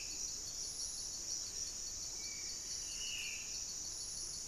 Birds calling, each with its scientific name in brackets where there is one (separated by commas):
Spot-winged Antshrike (Pygiptila stellaris), Black-faced Antthrush (Formicarius analis), Buff-breasted Wren (Cantorchilus leucotis), Black-spotted Bare-eye (Phlegopsis nigromaculata), Horned Screamer (Anhima cornuta)